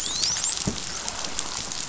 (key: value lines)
label: biophony, dolphin
recorder: SoundTrap 500